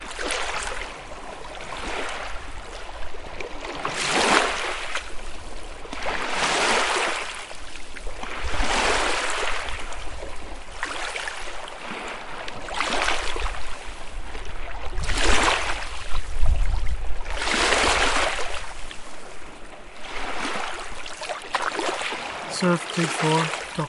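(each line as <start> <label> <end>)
0.0 Short, rhythmic water splashes repeat periodically, resembling oars dipping into the water. 23.9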